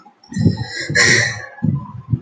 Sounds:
Sigh